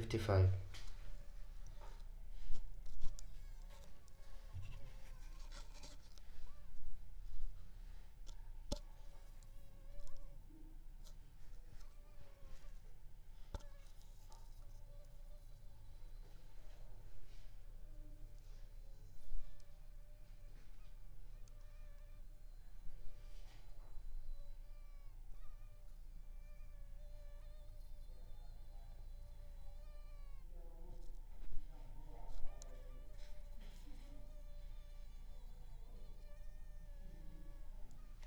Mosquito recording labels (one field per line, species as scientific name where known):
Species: Aedes aegypti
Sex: female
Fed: unfed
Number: one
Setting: cup